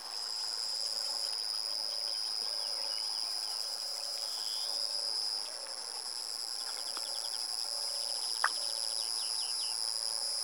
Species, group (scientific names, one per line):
Pteronemobius lineolatus
Orthoptera